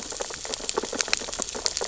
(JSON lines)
{"label": "biophony, sea urchins (Echinidae)", "recorder": "SoundTrap 600 or HydroMoth"}